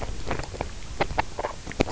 {"label": "biophony, grazing", "recorder": "SoundTrap 300"}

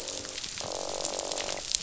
{"label": "biophony, croak", "recorder": "SoundTrap 500"}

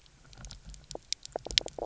{"label": "biophony, knock croak", "recorder": "SoundTrap 300"}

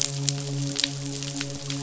{"label": "biophony, midshipman", "recorder": "SoundTrap 500"}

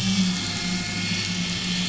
{"label": "anthrophony, boat engine", "recorder": "SoundTrap 500"}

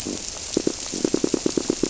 {"label": "biophony, squirrelfish (Holocentrus)", "recorder": "SoundTrap 300"}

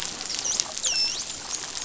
{"label": "biophony, dolphin", "recorder": "SoundTrap 500"}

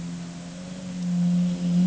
{"label": "anthrophony, boat engine", "recorder": "HydroMoth"}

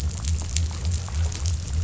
{"label": "biophony", "recorder": "SoundTrap 500"}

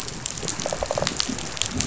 {"label": "biophony", "recorder": "SoundTrap 500"}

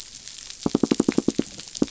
{"label": "biophony, knock", "recorder": "SoundTrap 500"}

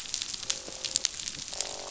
{"label": "biophony, croak", "recorder": "SoundTrap 500"}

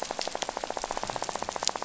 {"label": "biophony, rattle", "recorder": "SoundTrap 500"}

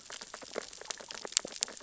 {"label": "biophony, sea urchins (Echinidae)", "recorder": "SoundTrap 600 or HydroMoth"}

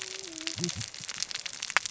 {"label": "biophony, cascading saw", "recorder": "SoundTrap 600 or HydroMoth"}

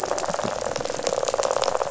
{"label": "biophony, rattle", "recorder": "SoundTrap 500"}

